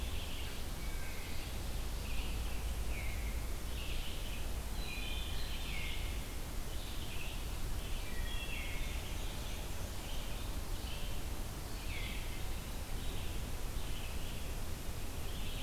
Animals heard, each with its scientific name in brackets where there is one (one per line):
Black-and-white Warbler (Mniotilta varia)
Red-eyed Vireo (Vireo olivaceus)
Wood Thrush (Hylocichla mustelina)